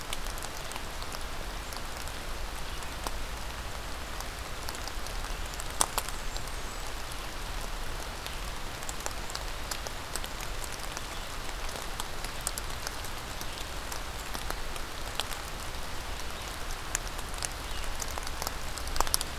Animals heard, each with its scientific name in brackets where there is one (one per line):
Blackburnian Warbler (Setophaga fusca)